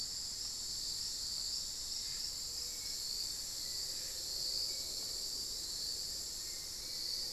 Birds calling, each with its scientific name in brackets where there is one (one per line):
Black-faced Antthrush (Formicarius analis)
Hauxwell's Thrush (Turdus hauxwelli)